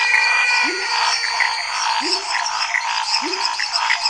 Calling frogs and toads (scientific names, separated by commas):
Physalaemus albonotatus, Elachistocleis matogrosso, Leptodactylus labyrinthicus, Dendropsophus minutus, Dendropsophus nanus, Scinax fuscovarius